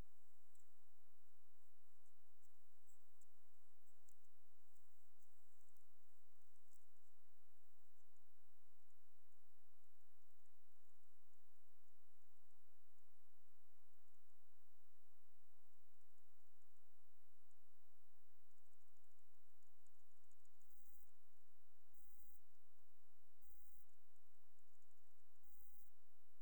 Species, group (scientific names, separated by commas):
Chorthippus jacobsi, Orthoptera